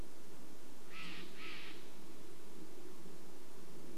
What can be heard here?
Steller's Jay call, airplane, Brown Creeper call